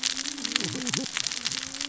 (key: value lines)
label: biophony, cascading saw
recorder: SoundTrap 600 or HydroMoth